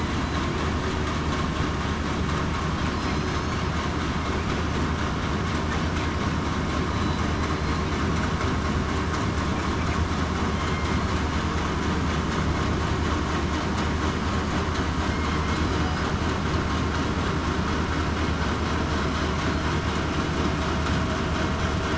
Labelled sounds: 2.9	3.6	killer whale, southern resident, 4.0 to 6.4 kHz
7.5	7.8	killer whale, southern resident, 4.1 to 4.3 kHz
10.5	10.9	killer whale, southern resident, 3.1 to 3.2 kHz

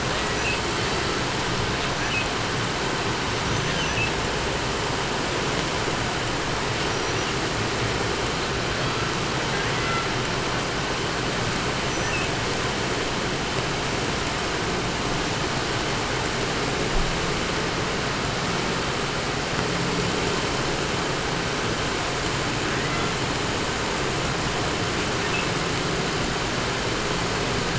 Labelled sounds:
0.0	1.3	killer whale, southern resident, call S18, 0.23 to 5.5 kHz
0.3	0.9	killer whale, southern resident, L pod, call S02iii, 0.22 to 6.2 kHz
1.6	2.4	killer whale, southern resident, L pod, call S02iii, 0.93 to 6.6 kHz
3.3	4.2	killer whale, southern resident, L pod, call S02iii, 0.83 to 6.7 kHz
6.8	7.4	killer whale, southern resident, 0.84 to 6.1 kHz
8.3	10.4	killer whale, southern resident, call S18, 0.65 to 8.0 kHz
11.7	12.6	killer whale, southern resident, L pod, call S02iii, 0.40 to 6.1 kHz
22.4	23.4	killer whale, southern resident, call S18, 0.61 to 3.8 kHz
24.8	25.6	killer whale, southern resident, L pod, call S02iii, 0.76 to 3.4 kHz

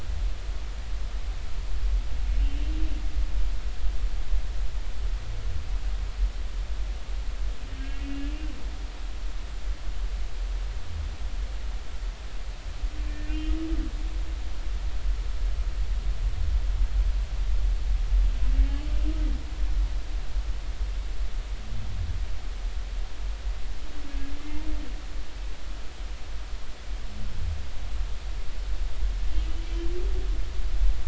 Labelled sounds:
2.4	2.6	humpback whale, 2.7 to 3.0 kHz
8.0	8.3	humpback whale, 2.8 to 2.9 kHz
13.2	13.6	humpback whale, 2.4 to 2.9 kHz

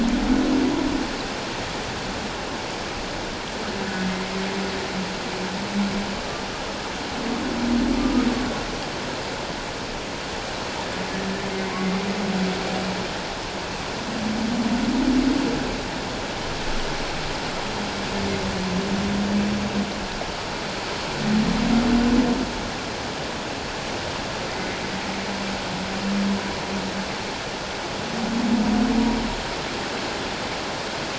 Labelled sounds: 3.8	4.1	humpback whale, 1.7 to 1.8 kHz

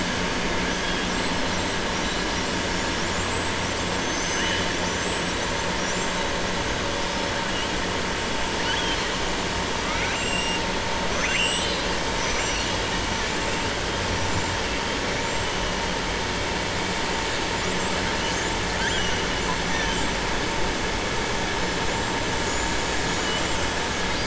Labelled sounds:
8.6	9.0	killer whale, southern resident, 1.3 to 3.4 kHz
9.8	10.6	killer whale, southern resident, 1.2 to 2.9 kHz
11.0	11.9	killer whale, southern resident, 1.4 to 7.8 kHz

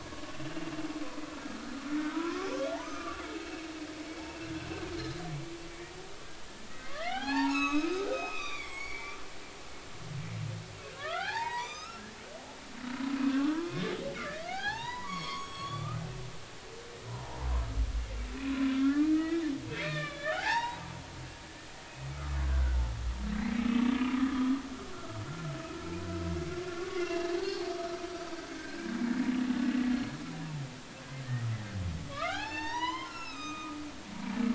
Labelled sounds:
2.1	4.5	humpback whale, 0.93 to 5.4 kHz
6.9	9.2	humpback whale, 0.80 to 7.9 kHz
10.9	12.1	humpback whale, 0.80 to 6.5 kHz
12.6	13.9	humpback whale, 0.99 to 2.8 kHz
14.4	16.0	humpback whale, 0.80 to 7.9 kHz
17.1	17.4	humpback whale, 0.80 to 1.1 kHz
18.7	19.4	humpback whale, 1.2 to 2.6 kHz
19.8	20.9	humpback whale, 0.80 to 4.8 kHz
22.1	22.8	humpback whale, 1.1 to 1.6 kHz
23.4	23.9	humpback whale, 1.1 to 2.4 kHz
26.6	28.9	humpback whale, 0.99 to 4.7 kHz
32.1	33.8	humpback whale, 0.80 to 6.5 kHz

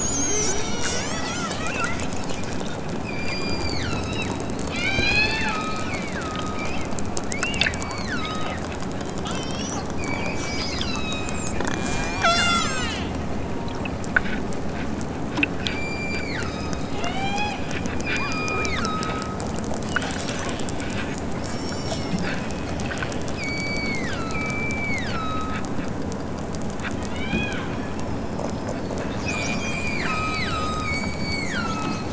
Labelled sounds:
0.0	2.1	killer whale, southern Alaska resident, 0.92 to 6.2 kHz
3.0	4.4	killer whale, southern Alaska resident, 1.0 to 8.0 kHz
4.7	6.7	killer whale, southern Alaska resident, 0.51 to 7.0 kHz
7.3	8.6	killer whale, southern Alaska resident, 1.0 to 7.1 kHz
9.2	12.9	killer whale, southern Alaska resident, 0.51 to 8.0 kHz
15.6	17.7	killer whale, southern Alaska resident, 0.32 to 8.0 kHz
18.0	19.5	killer whale, southern Alaska resident, 0.87 to 8.0 kHz
21.3	22.2	killer whale, southern Alaska resident, 1.1 to 8.0 kHz
23.3	25.7	killer whale, southern Alaska resident, 1.0 to 7.4 kHz
27.0	27.7	killer whale, southern Alaska resident, 1.1 to 5.5 kHz
29.2	32.1	killer whale, southern Alaska resident, 0.92 to 8.0 kHz

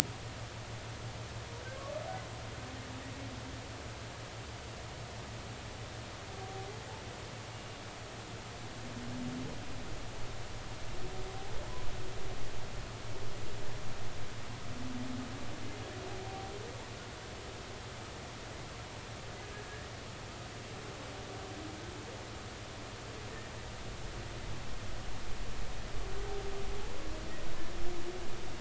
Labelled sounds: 7.5	7.8	humpback whale, 2.8 to 2.9 kHz

